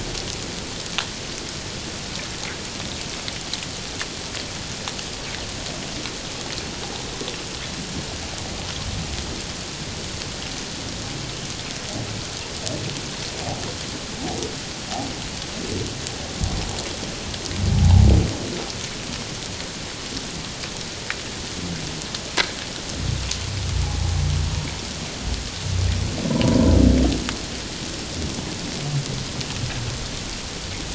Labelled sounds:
17.7	18.0	humpback whale, 0.78 to 1.0 kHz
23.8	24.1	humpback whale, 0.78 to 0.94 kHz
26.3	26.7	humpback whale, 0.91 to 1.1 kHz

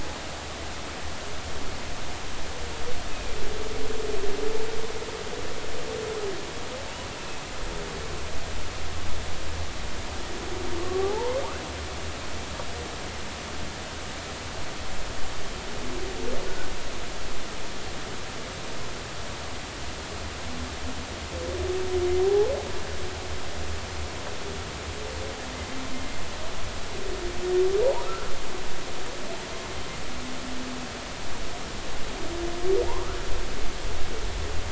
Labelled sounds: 3.1	3.4	humpback whale, 2.3 to 2.6 kHz
7.2	7.5	humpback whale, 2.5 to 2.7 kHz
10.8	11.4	humpback whale, 0.80 to 1.2 kHz
22.2	22.5	humpback whale, 0.80 to 0.93 kHz
27.8	28.3	humpback whale, 0.80 to 1.5 kHz
32.9	33.2	humpback whale, 0.83 to 1.5 kHz

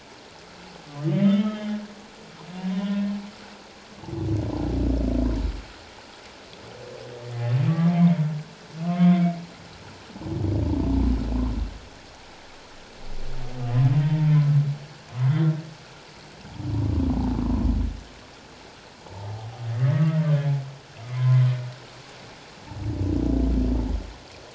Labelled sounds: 0.9	1.8	humpback whale, 1.1 to 3.2 kHz
2.7	3.1	humpback whale, 1.8 to 1.9 kHz
7.3	9.4	humpback whale, 1.0 to 2.4 kHz
14.0	14.3	humpback whale, 1.8 to 1.9 kHz
15.2	15.4	humpback whale, 1.9 to 2.1 kHz
19.0	20.2	humpback whale, 0.81 to 2.1 kHz
21.1	21.4	humpback whale, 0.97 to 1.1 kHz

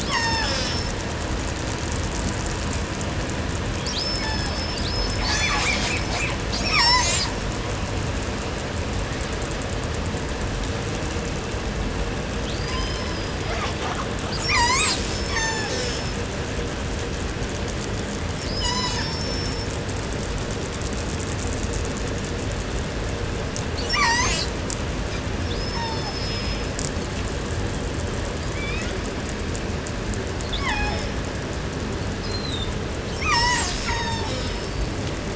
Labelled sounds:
0.0	1.0	killer whale, southern resident, call S36, 0.30 to 8.0 kHz
3.8	6.1	killer whale, southern resident, call S36, 0.32 to 8.0 kHz
5.1	7.0	killer whale, southern resident, call S10, 0.23 to 8.0 kHz
6.4	7.5	killer whale, southern resident, call S36, 0.13 to 8.0 kHz
12.4	13.5	killer whale, southern resident, call S36, 0.64 to 6.2 kHz
13.3	14.4	killer whale, southern resident, 0.34 to 6.6 kHz
14.2	15.1	killer whale, 0.30 to 8.0 kHz
15.0	16.3	killer whale, southern resident, call S36, 0.28 to 8.0 kHz
18.3	19.9	killer whale, southern resident, call S36, 0.49 to 8.0 kHz
23.7	24.6	killer whale, southern resident, call S36, 0.36 to 8.0 kHz
25.4	26.8	killer whale, southern resident, call S36, 0.34 to 5.9 kHz
28.2	29.1	killer whale, southern resident, call S19, 0.55 to 5.9 kHz
30.3	31.5	killer whale, southern resident, call S36, 0.45 to 6.5 kHz
32.1	32.8	killer whale, 3.2 to 8.0 kHz
33.2	34.9	killer whale, southern resident, call S36, 0.49 to 8.0 kHz

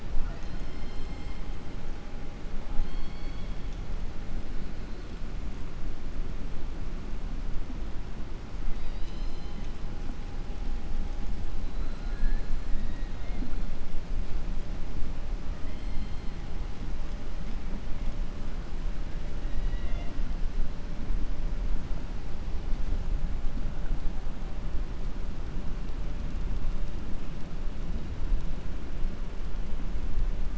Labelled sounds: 2.7	3.6	killer whale, southern resident, 2.2 to 4.5 kHz
19.4	20.2	killer whale, southern resident, 0.65 to 3.9 kHz

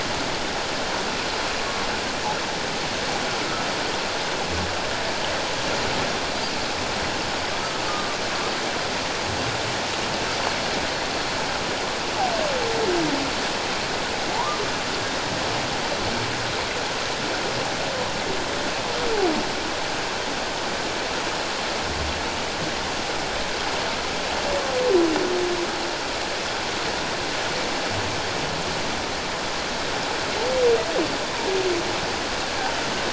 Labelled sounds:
7.9	8.2	humpback whale, 1.1 to 1.2 kHz
14.3	14.6	humpback whale, 0.81 to 1.2 kHz

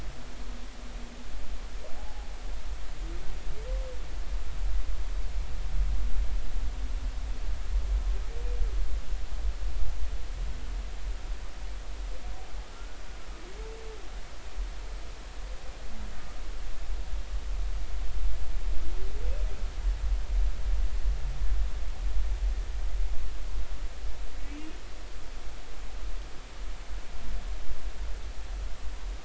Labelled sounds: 2.0	2.3	humpback whale, 0.80 to 0.90 kHz
12.7	13.0	humpback whale, 1.2 to 1.5 kHz
24.5	24.8	humpback whale, 2.5 to 2.9 kHz
25.3	25.6	humpback whale, 2.1 to 2.4 kHz

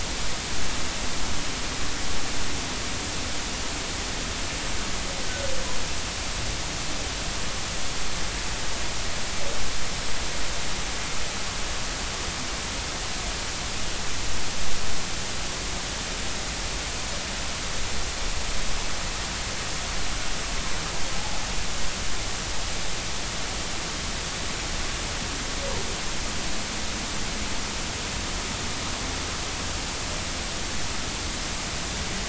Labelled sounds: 21.2	21.4	humpback whale, 0.80 to 0.90 kHz

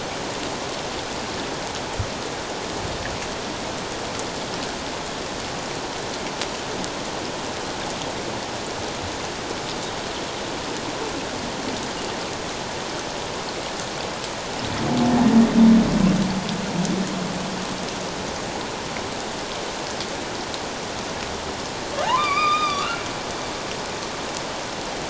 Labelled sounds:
22.0	23.0	humpback whale, 0.78 to 5.0 kHz

